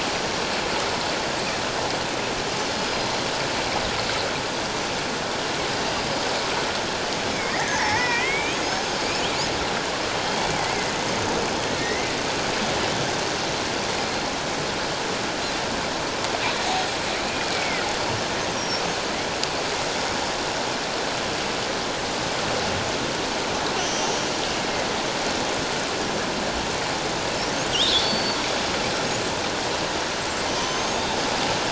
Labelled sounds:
0.1	0.5	killer whale, northern resident, 5.6 to 5.7 kHz
2.7	3.1	killer whale, northern resident, 4.9 to 5.0 kHz
7.5	8.8	killer whale, northern resident, 0.78 to 6.7 kHz
10.5	12.2	killer whale, northern resident, 1.8 to 2.4 kHz
13.9	14.3	killer whale, northern resident, 4.1 to 4.3 kHz
17.3	17.8	killer whale, northern resident, 1.8 to 2.5 kHz
18.6	18.8	killer whale, northern resident, 5.4 to 5.8 kHz
23.8	24.2	killer whale, northern resident, 5.5 to 6.3 kHz
27.7	28.4	killer whale, northern resident, 2.7 to 4.6 kHz
30.5	31.0	killer whale, northern resident, 5.8 to 6.8 kHz

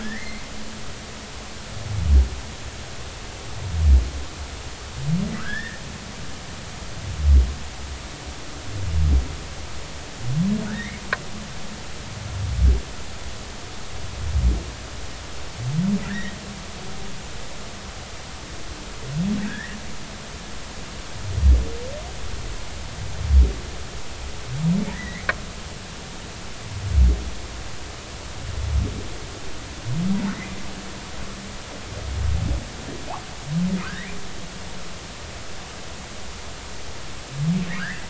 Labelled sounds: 0.0	0.5	humpback whale, 1.5 to 2.2 kHz
5.4	5.8	humpback whale, 1.2 to 2.0 kHz
10.7	11.0	humpback whale, 1.3 to 2.3 kHz
16.1	16.4	humpback whale, 1.5 to 2.2 kHz
19.4	19.8	humpback whale, 1.5 to 2.0 kHz
24.9	25.3	humpback whale, 1.7 to 2.3 kHz
33.8	34.2	humpback whale, 0.93 to 2.5 kHz
37.8	38.0	humpback whale, 1.2 to 2.1 kHz

